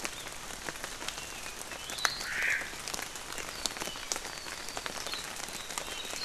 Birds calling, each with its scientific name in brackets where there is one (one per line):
Warbling White-eye (Zosterops japonicus)
Omao (Myadestes obscurus)